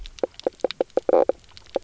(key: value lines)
label: biophony, knock croak
recorder: SoundTrap 300